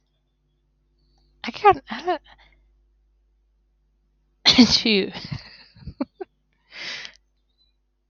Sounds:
Sneeze